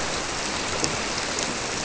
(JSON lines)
{"label": "biophony", "recorder": "SoundTrap 300"}